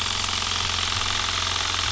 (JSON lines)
{"label": "anthrophony, boat engine", "recorder": "SoundTrap 300"}